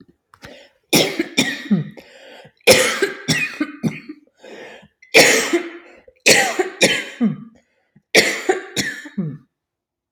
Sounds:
Cough